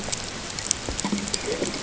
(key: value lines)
label: ambient
recorder: HydroMoth